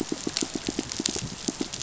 {"label": "biophony, pulse", "recorder": "SoundTrap 500"}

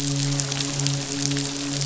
{"label": "biophony, midshipman", "recorder": "SoundTrap 500"}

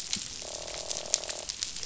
{"label": "biophony, croak", "recorder": "SoundTrap 500"}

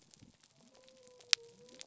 {"label": "biophony", "recorder": "SoundTrap 300"}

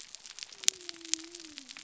{"label": "biophony", "recorder": "SoundTrap 300"}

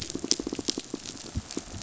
{"label": "biophony, pulse", "recorder": "SoundTrap 500"}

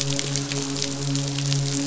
{"label": "biophony, midshipman", "recorder": "SoundTrap 500"}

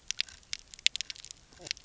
{"label": "biophony, knock croak", "recorder": "SoundTrap 300"}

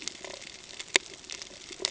{"label": "ambient", "recorder": "HydroMoth"}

